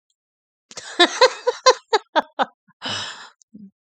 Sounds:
Laughter